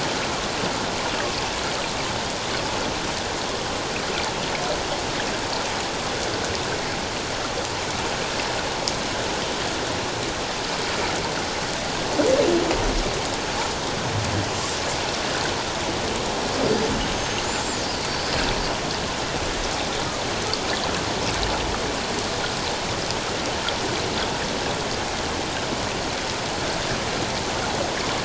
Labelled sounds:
17.0	18.3	killer whale, northern resident, 4.5 to 6.5 kHz

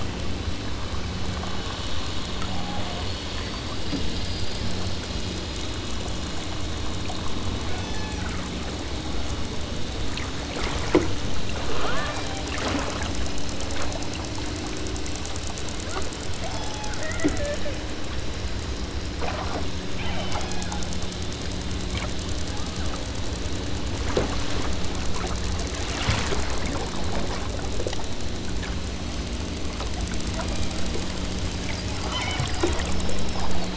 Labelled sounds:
7.7	8.4	killer whale, southern Alaska resident, 1.3 to 7.3 kHz
11.6	12.3	killer whale, southern Alaska resident, 0.51 to 2.3 kHz
16.4	17.4	killer whale, southern Alaska resident, 0.39 to 6.4 kHz
19.9	21.0	killer whale, southern Alaska resident, 0.56 to 3.8 kHz
22.6	23.1	killer whale, southern Alaska resident, 0.60 to 2.2 kHz
31.5	32.5	killer whale, southern Alaska resident, 1.4 to 3.8 kHz

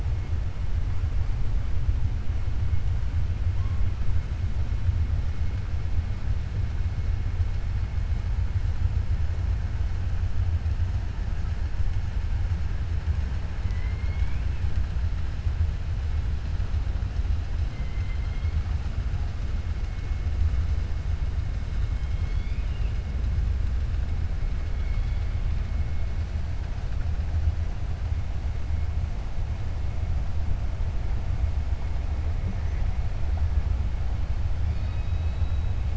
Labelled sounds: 13.6	14.5	killer whale, 1.0 to 4.3 kHz
17.7	18.5	killer whale, 1.4 to 4.2 kHz
24.7	25.3	killer whale, 1.3 to 5.4 kHz
34.6	35.7	killer whale, 2.0 to 5.3 kHz

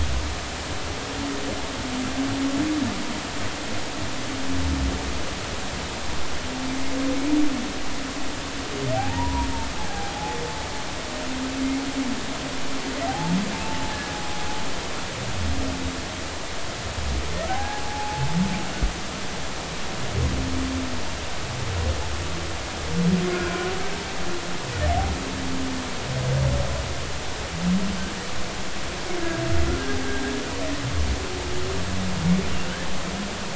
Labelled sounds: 8.9	9.5	humpback whale, 0.80 to 1.0 kHz
9.9	10.1	humpback whale, 0.80 to 0.86 kHz
13.1	13.3	humpback whale, 0.80 to 0.93 kHz
13.6	14.2	humpback whale, 0.83 to 1.8 kHz
17.5	18.3	humpback whale, 0.80 to 1.7 kHz
23.3	23.7	humpback whale, 1.4 to 1.5 kHz

